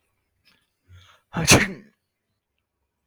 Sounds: Sneeze